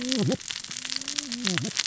{"label": "biophony, cascading saw", "recorder": "SoundTrap 600 or HydroMoth"}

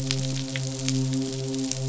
{"label": "biophony, midshipman", "recorder": "SoundTrap 500"}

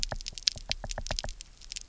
{"label": "biophony, knock", "recorder": "SoundTrap 300"}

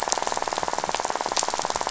{"label": "biophony, rattle", "recorder": "SoundTrap 500"}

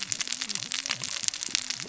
{"label": "biophony, cascading saw", "recorder": "SoundTrap 600 or HydroMoth"}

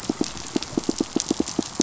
{"label": "biophony, pulse", "recorder": "SoundTrap 500"}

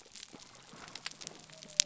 {"label": "biophony", "recorder": "SoundTrap 300"}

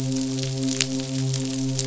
{"label": "biophony, midshipman", "recorder": "SoundTrap 500"}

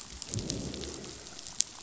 {"label": "biophony, growl", "recorder": "SoundTrap 500"}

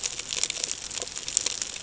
{"label": "ambient", "recorder": "HydroMoth"}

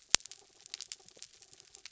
{"label": "anthrophony, mechanical", "recorder": "SoundTrap 300"}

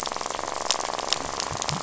{"label": "biophony, rattle", "recorder": "SoundTrap 500"}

